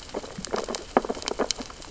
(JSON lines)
{"label": "biophony, sea urchins (Echinidae)", "recorder": "SoundTrap 600 or HydroMoth"}